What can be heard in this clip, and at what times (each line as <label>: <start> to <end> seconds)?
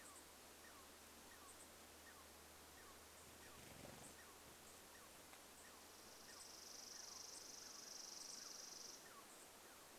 unidentified bird chip note: 0 to 2 seconds
Douglas squirrel chirp: 0 to 10 seconds
bird wingbeats: 2 to 4 seconds
unidentified bird chip note: 4 to 10 seconds
Chipping Sparrow song: 6 to 10 seconds